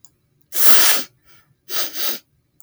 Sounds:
Sniff